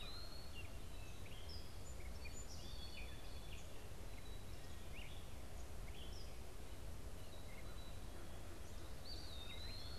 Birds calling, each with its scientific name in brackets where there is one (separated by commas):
Gray Catbird (Dumetella carolinensis), Song Sparrow (Melospiza melodia), Eastern Wood-Pewee (Contopus virens)